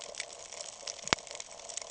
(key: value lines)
label: ambient
recorder: HydroMoth